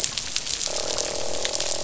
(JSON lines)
{"label": "biophony, croak", "recorder": "SoundTrap 500"}